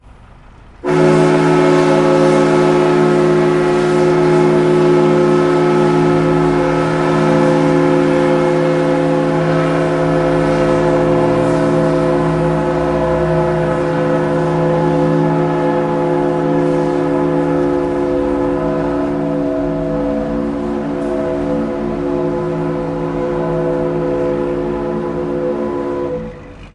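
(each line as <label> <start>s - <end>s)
A long, loud train horn sounds continuously with a slight fade before ending. 0.0s - 26.7s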